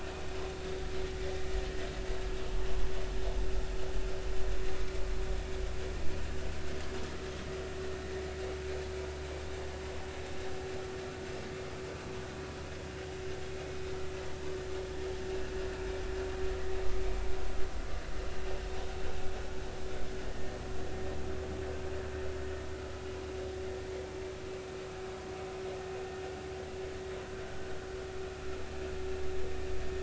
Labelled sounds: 20.2	20.6	vessel noise, 1.8 to 2.0 kHz
27.4	27.7	vessel noise, 1.4 to 1.6 kHz

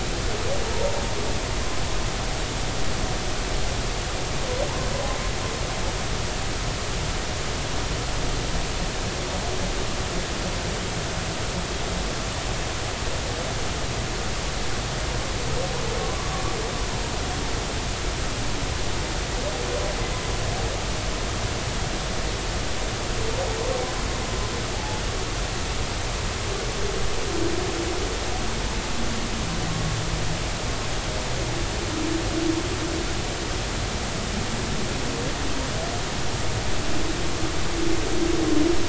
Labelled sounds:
24.7	25.0	humpback whale, 0.80 to 0.90 kHz

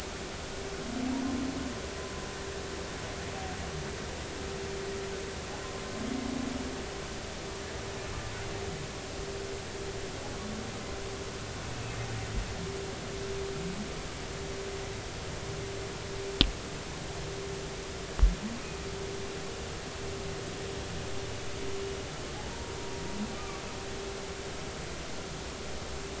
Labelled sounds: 23.4	23.6	humpback whale, 1.1 to 1.3 kHz

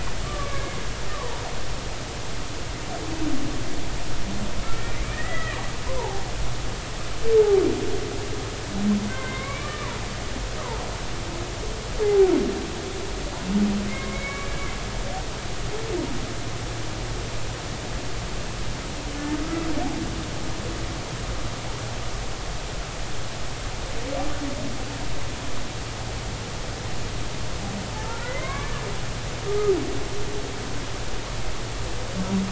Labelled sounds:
0.2	0.8	humpback whale, 1.1 to 2.3 kHz
1.1	1.4	humpback whale, 0.86 to 1.3 kHz
4.7	5.6	humpback whale, 1.7 to 2.6 kHz
5.9	6.2	humpback whale, 0.80 to 1.1 kHz
9.1	9.9	humpback whale, 1.0 to 2.4 kHz
12.0	12.3	humpback whale, 0.80 to 0.86 kHz
13.9	14.6	humpback whale, 1.6 to 2.3 kHz
28.0	28.7	humpback whale, 0.80 to 2.4 kHz

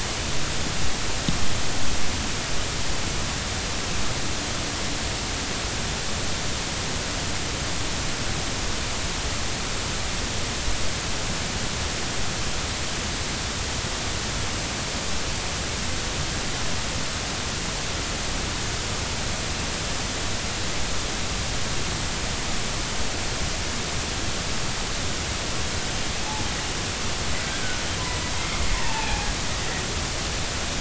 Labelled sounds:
28.7	29.3	humpback whale, 0.80 to 2.7 kHz

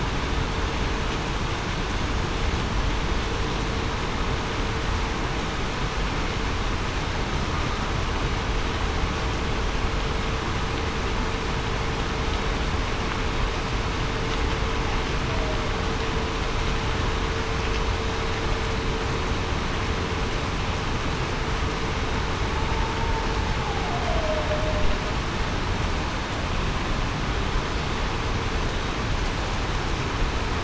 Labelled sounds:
23.9	24.5	humpback whale, 0.58 to 0.73 kHz

